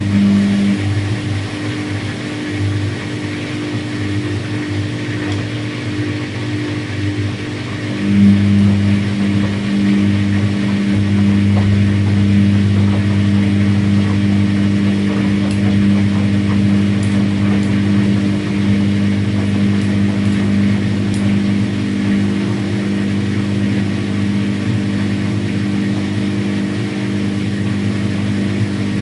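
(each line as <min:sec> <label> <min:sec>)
0:00.0 A washing machine whirrs. 0:29.0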